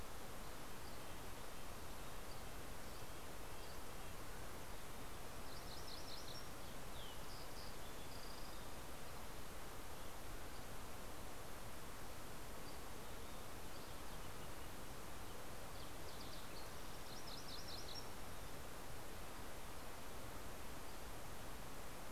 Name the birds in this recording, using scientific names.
Sitta canadensis, Empidonax oberholseri, Geothlypis tolmiei, Passerella iliaca